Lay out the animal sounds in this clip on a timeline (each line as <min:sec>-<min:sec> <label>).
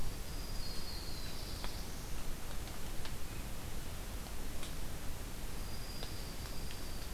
0:00.0-0:01.6 Dark-eyed Junco (Junco hyemalis)
0:00.6-0:02.2 Black-throated Blue Warbler (Setophaga caerulescens)
0:02.9-0:03.9 Swainson's Thrush (Catharus ustulatus)
0:05.5-0:07.1 Dark-eyed Junco (Junco hyemalis)